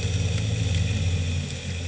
{"label": "anthrophony, boat engine", "recorder": "HydroMoth"}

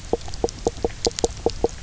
{"label": "biophony, knock croak", "recorder": "SoundTrap 300"}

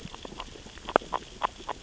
{"label": "biophony, grazing", "recorder": "SoundTrap 600 or HydroMoth"}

